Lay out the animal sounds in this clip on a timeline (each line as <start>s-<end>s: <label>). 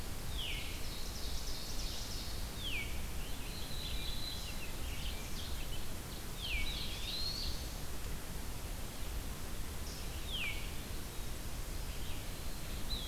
0.2s-0.7s: Veery (Catharus fuscescens)
0.4s-2.9s: Ovenbird (Seiurus aurocapilla)
1.6s-13.1s: Red-eyed Vireo (Vireo olivaceus)
2.5s-2.9s: Veery (Catharus fuscescens)
3.1s-6.0s: American Robin (Turdus migratorius)
3.4s-4.7s: Black-throated Blue Warbler (Setophaga caerulescens)
6.1s-8.0s: Black-throated Blue Warbler (Setophaga caerulescens)
6.2s-6.6s: Veery (Catharus fuscescens)
6.5s-7.6s: Eastern Wood-Pewee (Contopus virens)
10.2s-10.7s: Veery (Catharus fuscescens)